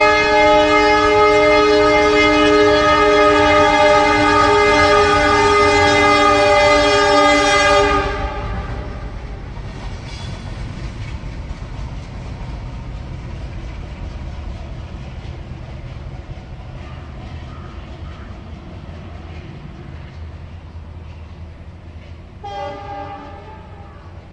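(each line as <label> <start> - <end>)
A train honks loudly and repeatedly. 0.0 - 9.0
A train slowly moves away as its sound gradually fades. 9.1 - 24.3
A train honks once in the distance. 22.0 - 24.3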